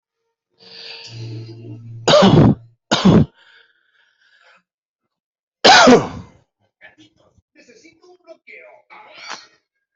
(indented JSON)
{
  "expert_labels": [
    {
      "quality": "good",
      "cough_type": "dry",
      "dyspnea": false,
      "wheezing": false,
      "stridor": false,
      "choking": false,
      "congestion": false,
      "nothing": true,
      "diagnosis": "upper respiratory tract infection",
      "severity": "mild"
    }
  ],
  "age": 32,
  "gender": "male",
  "respiratory_condition": false,
  "fever_muscle_pain": false,
  "status": "healthy"
}